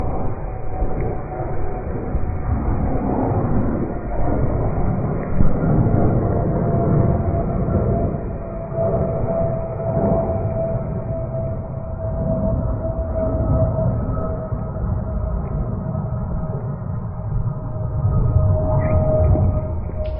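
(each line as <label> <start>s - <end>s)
Heavy wind blowing loudly. 0.0s - 20.2s
The sound of an airplane flying at a distance. 0.0s - 20.2s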